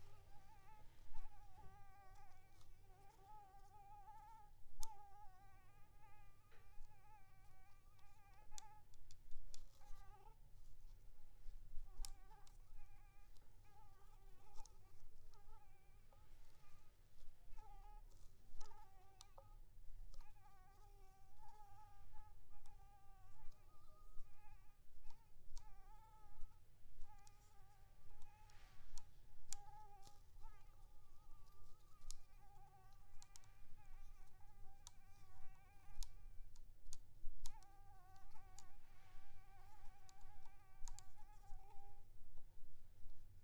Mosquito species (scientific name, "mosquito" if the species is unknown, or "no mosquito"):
Anopheles maculipalpis